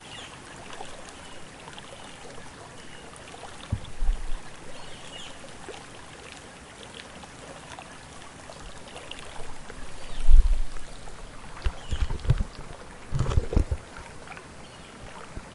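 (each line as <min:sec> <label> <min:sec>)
0:00.0 A bird singing quietly in the background. 0:01.2
0:00.0 Water splashes quietly in a steady manner. 0:15.5
0:04.7 A bird singing quietly in the background. 0:06.2
0:11.5 A bird singing quietly in the background. 0:12.7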